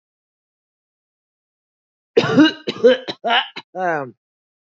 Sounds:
Cough